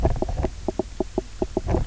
{"label": "biophony, knock croak", "recorder": "SoundTrap 300"}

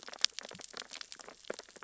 {"label": "biophony, sea urchins (Echinidae)", "recorder": "SoundTrap 600 or HydroMoth"}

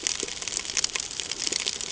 {"label": "ambient", "recorder": "HydroMoth"}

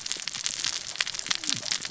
{"label": "biophony, cascading saw", "recorder": "SoundTrap 600 or HydroMoth"}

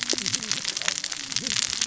{"label": "biophony, cascading saw", "recorder": "SoundTrap 600 or HydroMoth"}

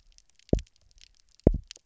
{"label": "biophony, double pulse", "recorder": "SoundTrap 300"}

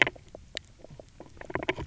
{"label": "biophony, knock croak", "recorder": "SoundTrap 300"}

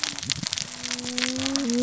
{"label": "biophony, cascading saw", "recorder": "SoundTrap 600 or HydroMoth"}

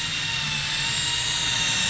{"label": "anthrophony, boat engine", "recorder": "SoundTrap 500"}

